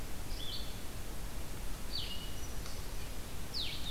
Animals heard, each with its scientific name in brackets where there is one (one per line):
Blue-headed Vireo (Vireo solitarius)